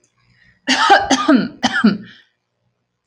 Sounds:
Cough